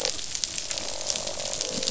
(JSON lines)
{"label": "biophony, croak", "recorder": "SoundTrap 500"}